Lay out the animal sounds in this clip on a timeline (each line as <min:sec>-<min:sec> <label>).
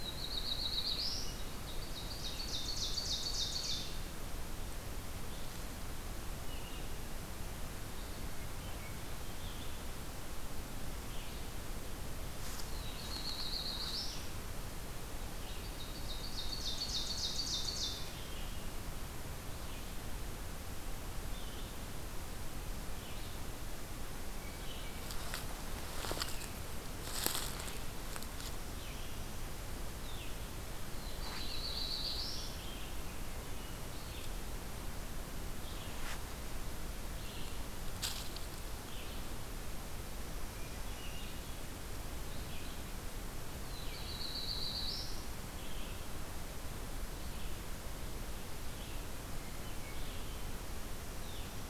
0:00.0-0:01.5 Black-throated Blue Warbler (Setophaga caerulescens)
0:00.0-0:51.7 Red-eyed Vireo (Vireo olivaceus)
0:01.6-0:04.0 Ovenbird (Seiurus aurocapilla)
0:12.5-0:14.2 Black-throated Blue Warbler (Setophaga caerulescens)
0:15.4-0:18.1 Ovenbird (Seiurus aurocapilla)
0:30.8-0:32.7 Black-throated Blue Warbler (Setophaga caerulescens)
0:43.6-0:45.2 Black-throated Blue Warbler (Setophaga caerulescens)